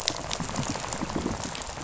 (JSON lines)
{"label": "biophony, rattle", "recorder": "SoundTrap 500"}